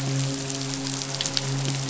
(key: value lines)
label: biophony, midshipman
recorder: SoundTrap 500